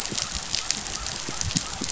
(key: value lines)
label: biophony
recorder: SoundTrap 500